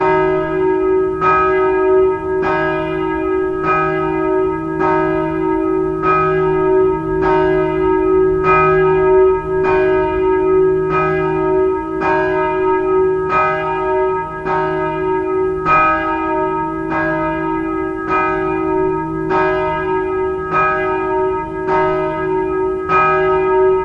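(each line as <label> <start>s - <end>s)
A church bell rings loudly and repeatedly, echoing. 0.0s - 23.8s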